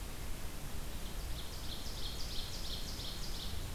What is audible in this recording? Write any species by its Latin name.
Seiurus aurocapilla